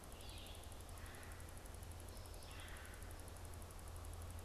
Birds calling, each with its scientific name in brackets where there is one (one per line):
Red-bellied Woodpecker (Melanerpes carolinus)
Red-winged Blackbird (Agelaius phoeniceus)